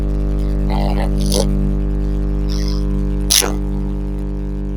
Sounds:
Sneeze